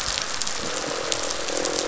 {"label": "biophony, croak", "recorder": "SoundTrap 500"}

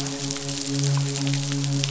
{"label": "biophony, midshipman", "recorder": "SoundTrap 500"}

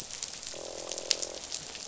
{"label": "biophony, croak", "recorder": "SoundTrap 500"}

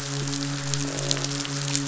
{"label": "biophony, croak", "recorder": "SoundTrap 500"}
{"label": "biophony, midshipman", "recorder": "SoundTrap 500"}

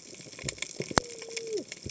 {"label": "biophony, cascading saw", "recorder": "HydroMoth"}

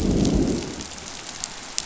{"label": "biophony, growl", "recorder": "SoundTrap 500"}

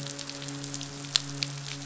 {"label": "biophony, midshipman", "recorder": "SoundTrap 500"}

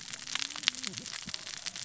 {"label": "biophony, cascading saw", "recorder": "SoundTrap 600 or HydroMoth"}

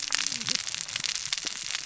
{"label": "biophony, cascading saw", "recorder": "SoundTrap 600 or HydroMoth"}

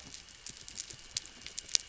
{"label": "anthrophony, boat engine", "recorder": "SoundTrap 300"}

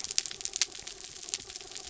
{"label": "anthrophony, mechanical", "recorder": "SoundTrap 300"}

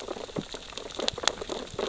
{"label": "biophony, sea urchins (Echinidae)", "recorder": "SoundTrap 600 or HydroMoth"}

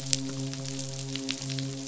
{"label": "biophony, midshipman", "recorder": "SoundTrap 500"}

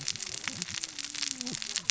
{"label": "biophony, cascading saw", "recorder": "SoundTrap 600 or HydroMoth"}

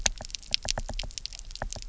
{"label": "biophony, knock", "recorder": "SoundTrap 300"}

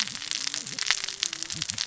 {"label": "biophony, cascading saw", "recorder": "SoundTrap 600 or HydroMoth"}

